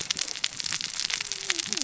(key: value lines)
label: biophony, cascading saw
recorder: SoundTrap 600 or HydroMoth